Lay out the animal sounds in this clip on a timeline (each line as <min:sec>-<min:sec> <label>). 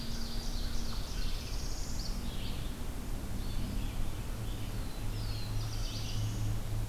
0:00.0-0:01.2 Ovenbird (Seiurus aurocapilla)
0:00.0-0:06.9 Red-eyed Vireo (Vireo olivaceus)
0:00.0-0:06.9 unknown mammal
0:01.0-0:02.3 Northern Parula (Setophaga americana)
0:04.4-0:06.4 Black-throated Blue Warbler (Setophaga caerulescens)